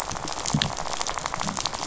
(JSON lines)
{"label": "biophony, rattle", "recorder": "SoundTrap 500"}